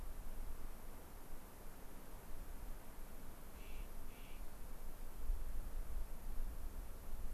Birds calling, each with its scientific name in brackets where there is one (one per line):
Clark's Nutcracker (Nucifraga columbiana)